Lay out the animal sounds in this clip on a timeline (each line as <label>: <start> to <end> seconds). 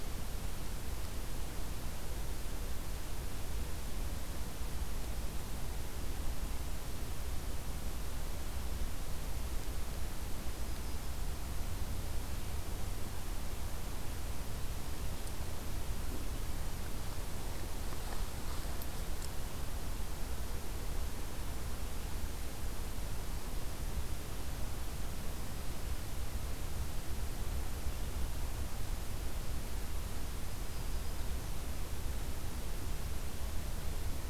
Yellow-rumped Warbler (Setophaga coronata): 10.2 to 11.4 seconds
Black-throated Green Warbler (Setophaga virens): 30.4 to 31.6 seconds